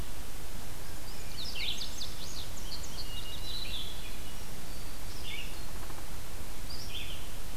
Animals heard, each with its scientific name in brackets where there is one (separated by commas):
Red-eyed Vireo (Vireo olivaceus), Indigo Bunting (Passerina cyanea), Downy Woodpecker (Dryobates pubescens), Hermit Thrush (Catharus guttatus)